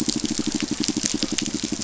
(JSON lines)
{"label": "biophony, pulse", "recorder": "SoundTrap 500"}